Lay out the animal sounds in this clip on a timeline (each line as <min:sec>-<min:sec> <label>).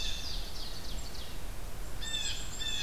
0:00.0-0:00.7 American Goldfinch (Spinus tristis)
0:00.0-0:01.4 Ovenbird (Seiurus aurocapilla)
0:01.8-0:02.8 Blue Jay (Cyanocitta cristata)
0:01.8-0:02.8 Black-capped Chickadee (Poecile atricapillus)